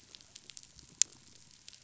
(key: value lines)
label: biophony
recorder: SoundTrap 500